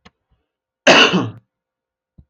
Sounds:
Cough